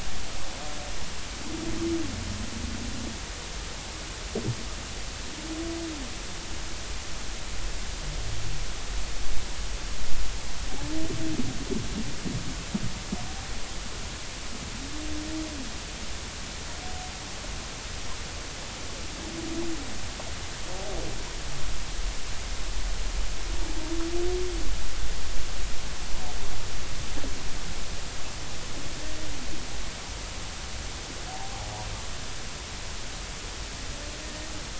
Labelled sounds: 34.2	34.5	humpback whale, 1.8 to 1.9 kHz

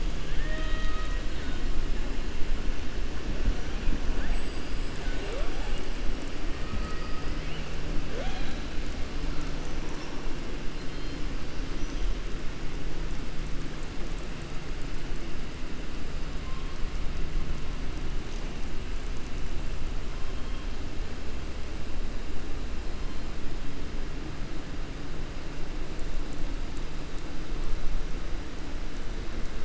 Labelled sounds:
0.2	1.2	killer whale, southern resident, 0.61 to 4.5 kHz
4.2	5.4	killer whale, southern resident, 4.5 to 8.0 kHz
6.6	7.3	killer whale, southern resident, 1.2 to 2.6 kHz

